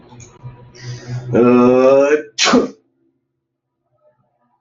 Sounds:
Sneeze